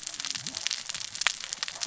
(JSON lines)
{"label": "biophony, cascading saw", "recorder": "SoundTrap 600 or HydroMoth"}